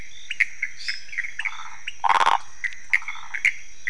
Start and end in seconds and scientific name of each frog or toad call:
0.0	3.8	Leptodactylus podicipinus
0.0	3.8	Phyllomedusa sauvagii
0.0	3.8	Pithecopus azureus
0.7	1.1	Dendropsophus minutus